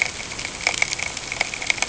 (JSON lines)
{"label": "ambient", "recorder": "HydroMoth"}